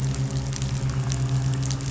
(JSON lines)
{"label": "anthrophony, boat engine", "recorder": "SoundTrap 500"}